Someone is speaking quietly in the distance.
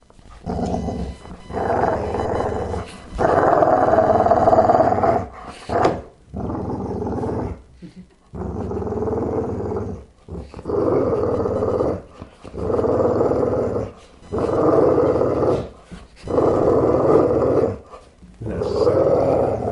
0:16.5 0:19.6

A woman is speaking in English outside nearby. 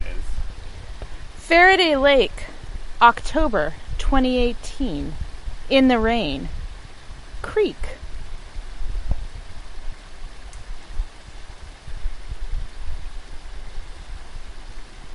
0:01.4 0:08.0

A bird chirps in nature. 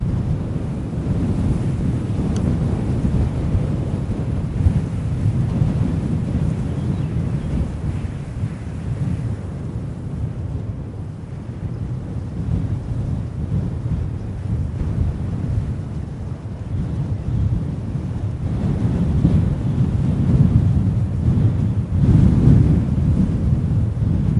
0:06.6 0:08.1

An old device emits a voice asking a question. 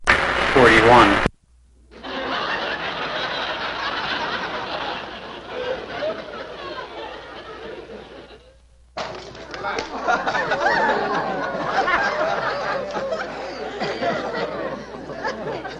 0:00.0 0:01.4

